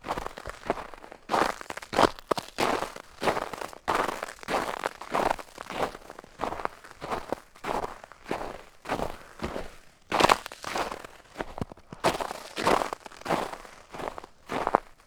Is the element being walked upon crunching?
yes